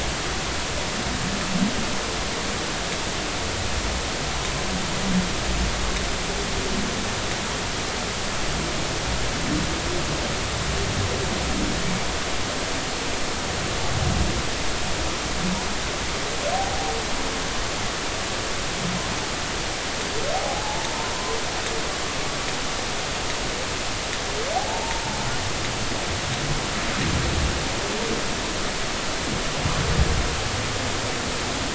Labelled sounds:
16.5	17.0	humpback whale, 0.80 to 0.93 kHz
20.3	20.9	humpback whale, 0.80 to 0.96 kHz
24.5	25.0	humpback whale, 0.80 to 0.96 kHz

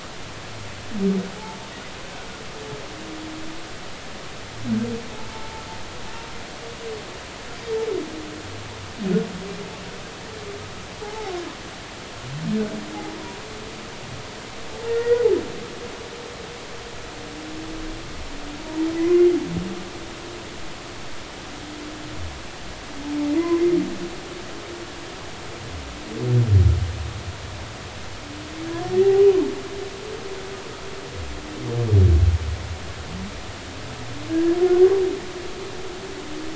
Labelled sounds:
5.3	5.6	humpback whale, 0.83 to 0.93 kHz
11.0	11.3	humpback whale, 0.80 to 0.93 kHz
14.9	15.3	humpback whale, 1.3 to 2.0 kHz
23.4	23.6	humpback whale, 0.96 to 1.1 kHz
34.3	34.6	humpback whale, 1.6 to 1.8 kHz

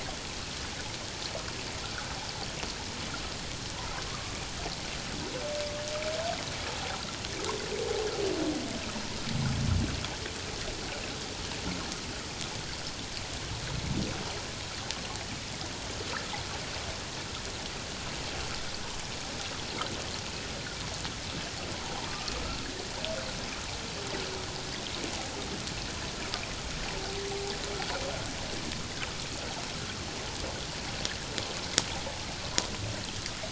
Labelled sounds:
4.1	4.4	humpback whale, 1.0 to 1.3 kHz
22.1	22.3	humpback whale, 1.1 to 1.3 kHz

